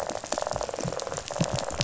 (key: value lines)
label: biophony
recorder: SoundTrap 500

label: biophony, rattle
recorder: SoundTrap 500